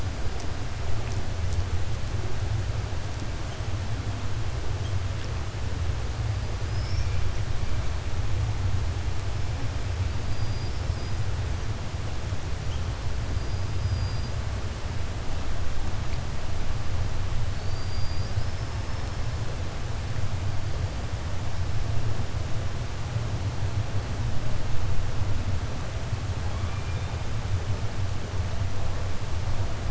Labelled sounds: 6.6	7.1	killer whale, 5.0 to 6.2 kHz
10.3	11.2	killer whale, 4.8 to 5.4 kHz
13.7	14.3	killer whale, 4.2 to 5.0 kHz
17.5	18.6	killer whale, 4.2 to 5.7 kHz

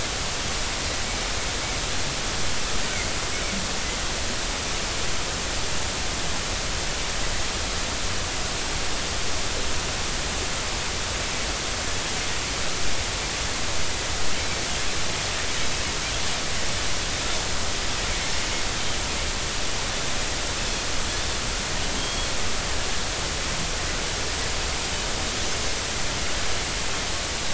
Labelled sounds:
20.6	20.9	Pacific white-sided dolphin, 2.4 to 2.7 kHz
22.0	22.3	Pacific white-sided dolphin, 3.1 to 3.4 kHz

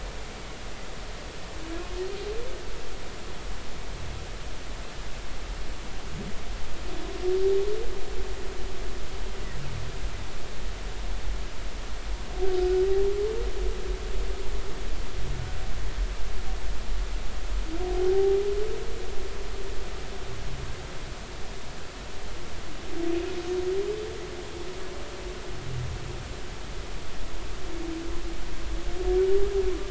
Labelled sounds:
17.8	18.4	humpback whale, 0.80 to 0.86 kHz

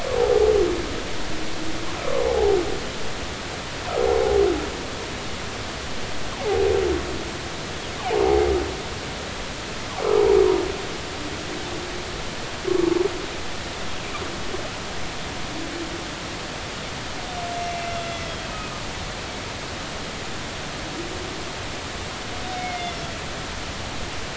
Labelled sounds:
0.2	0.4	humpback whale, 0.80 to 0.90 kHz
2.2	2.6	humpback whale, 0.80 to 0.90 kHz
18.0	18.7	humpback whale, 2.0 to 6.1 kHz
22.6	23.0	humpback whale, 2.0 to 2.2 kHz

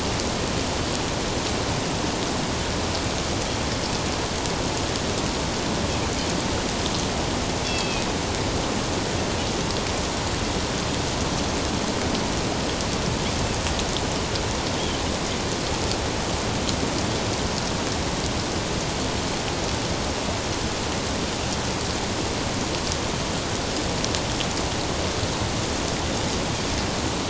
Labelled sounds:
7.6	8.1	Pacific white-sided dolphin, 2.4 to 4.8 kHz

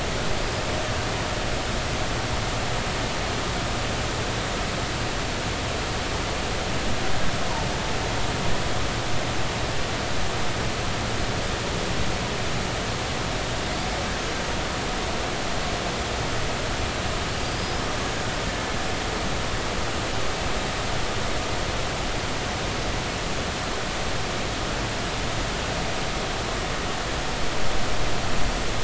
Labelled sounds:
17.4	17.8	killer whale, Bigg's (transient), 4.6 to 5.2 kHz

